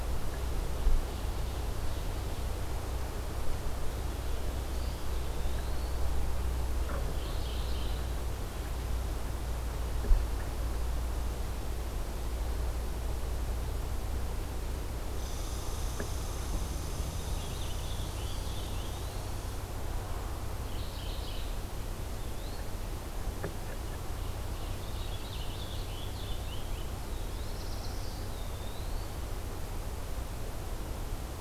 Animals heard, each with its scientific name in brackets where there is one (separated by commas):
Purple Finch (Haemorhous purpureus), Eastern Wood-Pewee (Contopus virens), Red Squirrel (Tamiasciurus hudsonicus), Ovenbird (Seiurus aurocapilla), Scarlet Tanager (Piranga olivacea), Mourning Warbler (Geothlypis philadelphia), Black-throated Blue Warbler (Setophaga caerulescens)